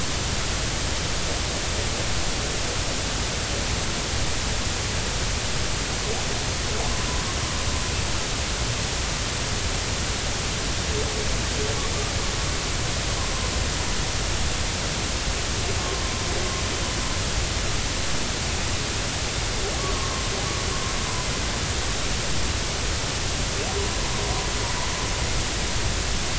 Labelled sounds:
19.9	20.2	humpback whale, 1.0 to 1.2 kHz

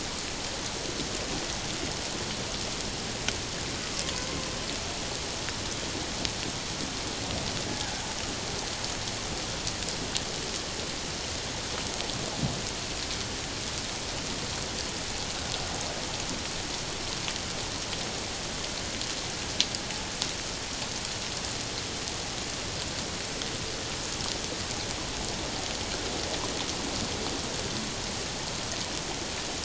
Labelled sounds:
7.7	8.0	killer whale, 1.4 to 1.8 kHz

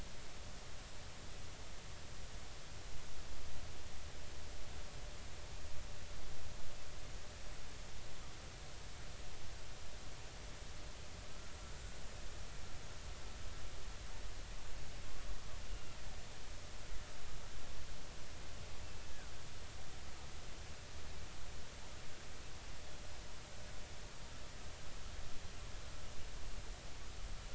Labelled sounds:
15.7	16.0	killer whale, Bigg's (transient), 2.7 to 2.9 kHz
18.8	19.1	killer whale, Bigg's (transient), 2.6 to 2.8 kHz

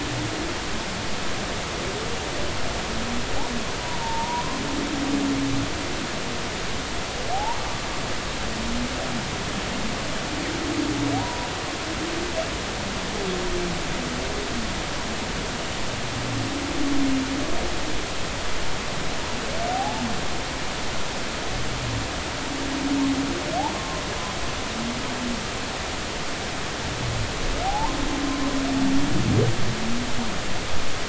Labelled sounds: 3.8	4.6	humpback whale, 0.86 to 1.1 kHz
7.3	7.9	humpback whale, 0.80 to 1.2 kHz
11.1	11.5	humpback whale, 0.80 to 1.0 kHz
19.7	20.1	humpback whale, 0.80 to 0.93 kHz
23.7	24.0	humpback whale, 0.99 to 1.1 kHz
27.6	28.0	humpback whale, 0.80 to 1.1 kHz

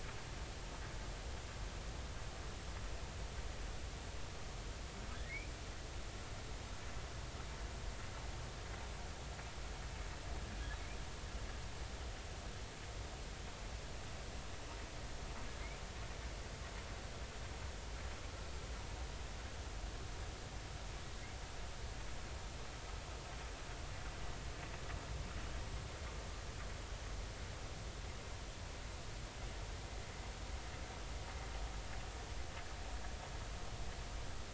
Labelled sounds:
5.1	5.5	humpback whale, 1.5 to 2.6 kHz

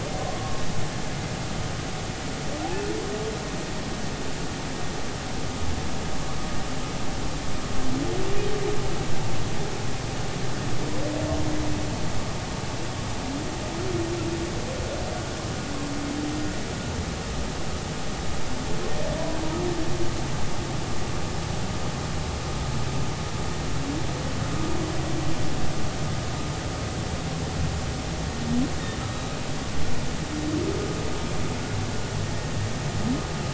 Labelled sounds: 0.4	0.6	humpback whale, 1.06 to 1.12 kHz

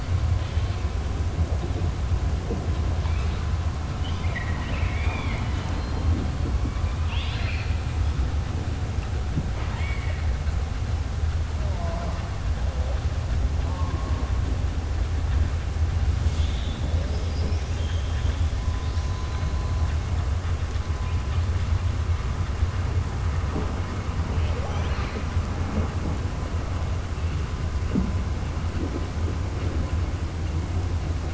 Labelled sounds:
3.9	6.0	killer whale, southern resident, 0.65 to 4.6 kHz
7.0	7.7	killer whale, southern resident, 1.4 to 5.2 kHz
9.5	10.2	killer whale, southern resident, 0.92 to 3.4 kHz
17.0	18.4	killer whale, southern resident, 1.7 to 7.5 kHz

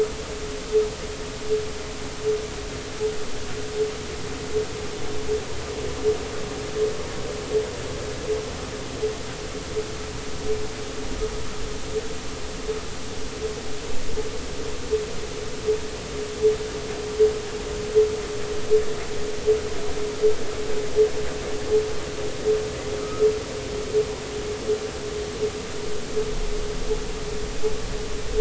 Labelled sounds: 23.0	23.3	humpback whale, 1.2 to 1.4 kHz

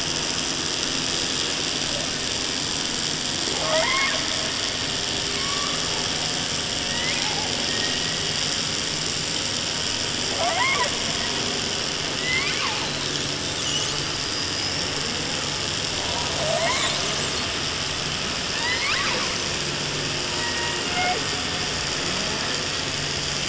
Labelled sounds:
3.5	4.2	killer whale, 0.33 to 5.4 kHz
5.3	5.8	killer whale, 0.74 to 5.8 kHz
6.8	8.6	killer whale, 0.35 to 5.0 kHz
10.3	10.9	killer whale, 0.30 to 3.5 kHz
12.1	12.9	killer whale, southern resident, J pod, call S01, 0.30 to 8.0 kHz
13.6	15.2	killer whale, 2.7 to 8.0 kHz
16.1	17.6	killer whale, 0.41 to 8.0 kHz
18.5	19.3	killer whale, 0.30 to 8.0 kHz
20.2	21.3	killer whale, 0.26 to 3.4 kHz

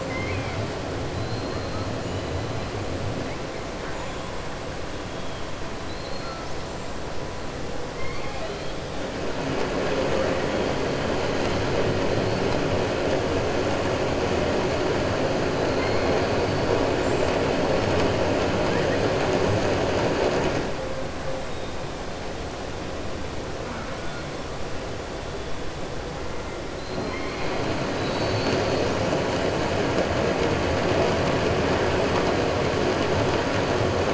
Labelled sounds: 0.0	0.5	killer whale, southern resident, 2.0 to 2.6 kHz
27.0	27.5	killer whale, southern resident, 1.9 to 3.1 kHz

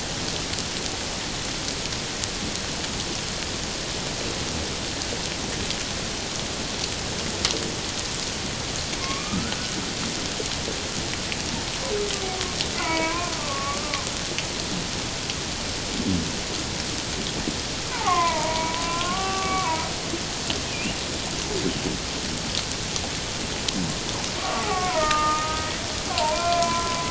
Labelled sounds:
9.0	9.6	humpback whale, 1.0 to 1.5 kHz
12.8	14.1	humpback whale, 0.91 to 2.5 kHz
17.9	19.8	humpback whale, 0.78 to 2.8 kHz
20.7	21.0	humpback whale, 2.3 to 2.9 kHz
24.4	25.7	humpback whale, 0.78 to 1.5 kHz
26.1	27.0	humpback whale, 0.88 to 2.4 kHz

